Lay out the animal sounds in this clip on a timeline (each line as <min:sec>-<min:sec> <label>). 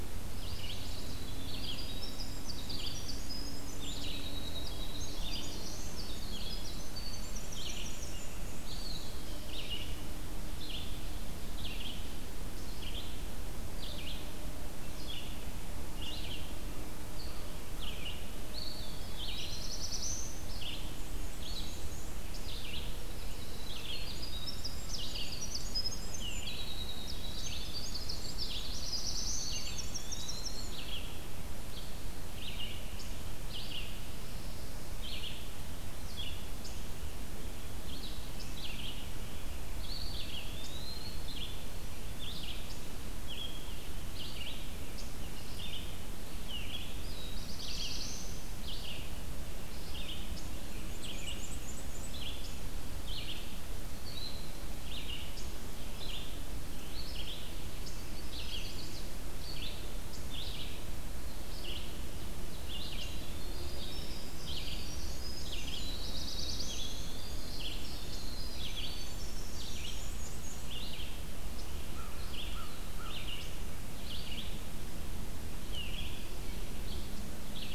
0:00.0-0:35.7 Red-eyed Vireo (Vireo olivaceus)
0:00.3-0:08.3 Winter Wren (Troglodytes hiemalis)
0:04.9-0:06.1 Black-throated Blue Warbler (Setophaga caerulescens)
0:08.2-0:09.3 Black-and-white Warbler (Mniotilta varia)
0:08.6-0:09.7 Eastern Wood-Pewee (Contopus virens)
0:18.5-0:20.1 Eastern Wood-Pewee (Contopus virens)
0:19.0-0:20.6 Black-throated Blue Warbler (Setophaga caerulescens)
0:20.7-0:22.3 Black-and-white Warbler (Mniotilta varia)
0:23.1-0:30.8 Winter Wren (Troglodytes hiemalis)
0:28.1-0:29.8 Black-throated Blue Warbler (Setophaga caerulescens)
0:29.1-0:31.1 Eastern Wood-Pewee (Contopus virens)
0:36.0-1:17.7 Red-eyed Vireo (Vireo olivaceus)
0:39.6-0:41.5 Eastern Wood-Pewee (Contopus virens)
0:46.7-0:48.8 Black-throated Blue Warbler (Setophaga caerulescens)
0:50.6-0:52.2 Black-and-white Warbler (Mniotilta varia)
0:57.7-0:59.1 Chestnut-sided Warbler (Setophaga pensylvanica)
1:02.3-1:10.2 Winter Wren (Troglodytes hiemalis)
1:05.3-1:06.9 Black-throated Blue Warbler (Setophaga caerulescens)
1:09.7-1:10.7 Black-and-white Warbler (Mniotilta varia)
1:11.8-1:13.3 American Crow (Corvus brachyrhynchos)